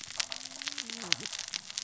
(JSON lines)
{"label": "biophony, cascading saw", "recorder": "SoundTrap 600 or HydroMoth"}